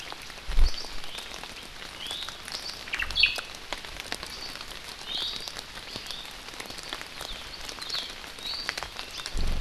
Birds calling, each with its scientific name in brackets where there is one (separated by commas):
Omao (Myadestes obscurus), Iiwi (Drepanis coccinea)